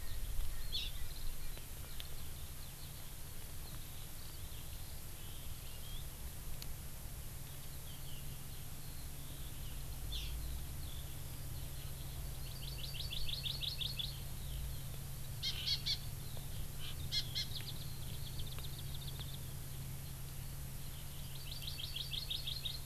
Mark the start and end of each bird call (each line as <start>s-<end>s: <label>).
0.0s-1.5s: Erckel's Francolin (Pternistis erckelii)
0.0s-6.1s: Eurasian Skylark (Alauda arvensis)
0.7s-0.9s: Hawaii Amakihi (Chlorodrepanis virens)
7.4s-19.4s: Eurasian Skylark (Alauda arvensis)
10.1s-10.3s: Hawaii Amakihi (Chlorodrepanis virens)
12.4s-14.1s: Hawaii Amakihi (Chlorodrepanis virens)
15.4s-16.0s: Hawaii Amakihi (Chlorodrepanis virens)
17.1s-17.5s: Hawaii Amakihi (Chlorodrepanis virens)
18.2s-19.4s: Warbling White-eye (Zosterops japonicus)
21.1s-22.8s: Hawaii Amakihi (Chlorodrepanis virens)